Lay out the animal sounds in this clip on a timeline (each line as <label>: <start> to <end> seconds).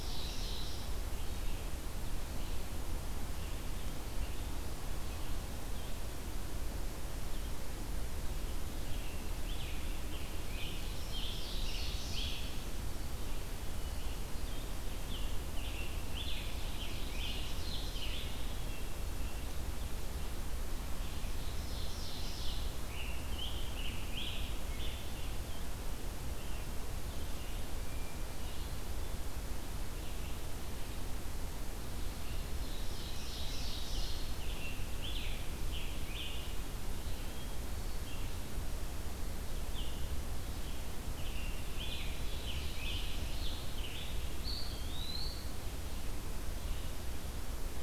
Ovenbird (Seiurus aurocapilla): 0.0 to 1.1 seconds
Red-eyed Vireo (Vireo olivaceus): 0.0 to 47.8 seconds
Scarlet Tanager (Piranga olivacea): 8.7 to 12.7 seconds
Ovenbird (Seiurus aurocapilla): 10.6 to 12.6 seconds
Hermit Thrush (Catharus guttatus): 13.7 to 14.6 seconds
Scarlet Tanager (Piranga olivacea): 15.0 to 18.4 seconds
Ovenbird (Seiurus aurocapilla): 16.3 to 18.2 seconds
Hermit Thrush (Catharus guttatus): 18.3 to 19.3 seconds
Ovenbird (Seiurus aurocapilla): 21.1 to 22.8 seconds
Scarlet Tanager (Piranga olivacea): 22.4 to 25.4 seconds
Hermit Thrush (Catharus guttatus): 27.8 to 28.8 seconds
Ovenbird (Seiurus aurocapilla): 32.4 to 34.4 seconds
Scarlet Tanager (Piranga olivacea): 33.4 to 36.5 seconds
Hermit Thrush (Catharus guttatus): 37.1 to 38.4 seconds
Scarlet Tanager (Piranga olivacea): 39.5 to 44.3 seconds
Ovenbird (Seiurus aurocapilla): 41.9 to 43.6 seconds
Eastern Wood-Pewee (Contopus virens): 44.1 to 45.5 seconds